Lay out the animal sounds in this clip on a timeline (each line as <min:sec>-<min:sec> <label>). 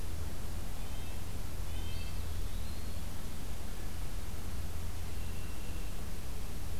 0:00.7-0:02.1 Red-breasted Nuthatch (Sitta canadensis)
0:01.9-0:03.1 Eastern Wood-Pewee (Contopus virens)